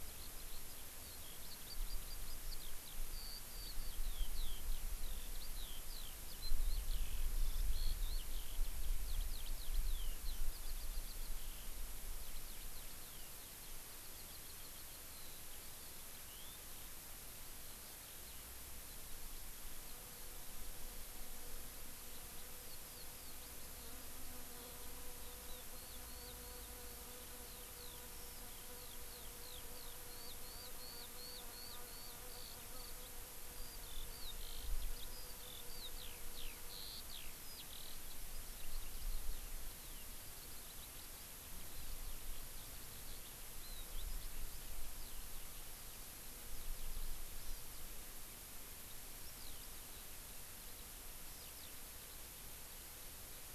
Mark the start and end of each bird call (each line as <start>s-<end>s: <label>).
0.0s-16.6s: Eurasian Skylark (Alauda arvensis)
17.3s-47.1s: Eurasian Skylark (Alauda arvensis)
47.4s-47.6s: Hawaii Amakihi (Chlorodrepanis virens)
49.2s-53.5s: Eurasian Skylark (Alauda arvensis)